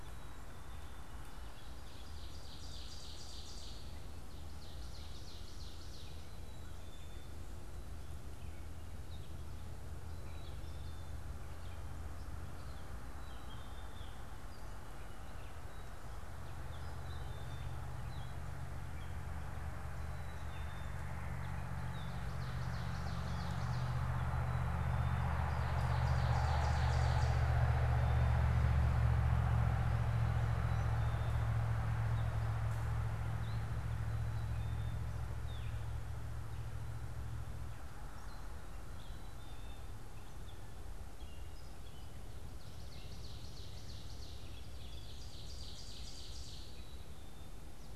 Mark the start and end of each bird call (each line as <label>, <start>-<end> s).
Black-capped Chickadee (Poecile atricapillus), 0.0-48.0 s
Ovenbird (Seiurus aurocapilla), 1.4-6.2 s
Gray Catbird (Dumetella carolinensis), 6.4-48.0 s
Ovenbird (Seiurus aurocapilla), 22.4-24.1 s
Ovenbird (Seiurus aurocapilla), 25.4-27.5 s
Ovenbird (Seiurus aurocapilla), 42.5-46.8 s